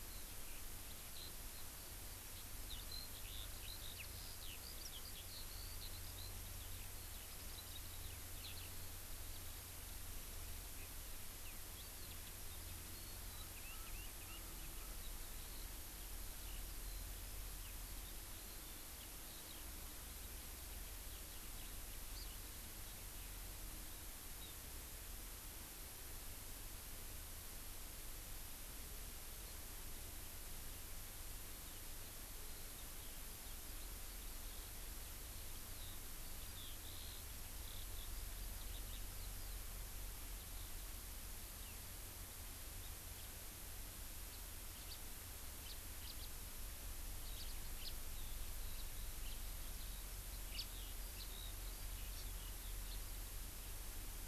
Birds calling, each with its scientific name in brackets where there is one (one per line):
Hawaii Amakihi (Chlorodrepanis virens)
Eurasian Skylark (Alauda arvensis)
House Finch (Haemorhous mexicanus)